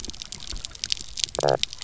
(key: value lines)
label: biophony, knock croak
recorder: SoundTrap 300